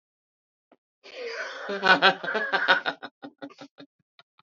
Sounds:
Laughter